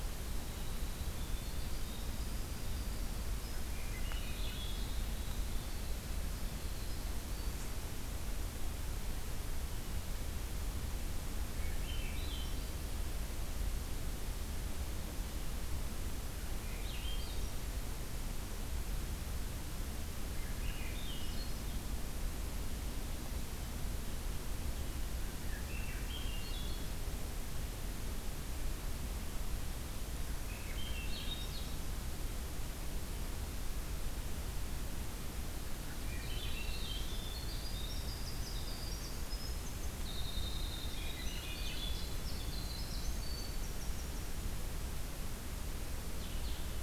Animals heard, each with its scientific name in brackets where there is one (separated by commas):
Winter Wren (Troglodytes hiemalis), Swainson's Thrush (Catharus ustulatus), Blue-headed Vireo (Vireo solitarius)